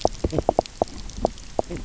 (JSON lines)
{"label": "biophony, knock croak", "recorder": "SoundTrap 300"}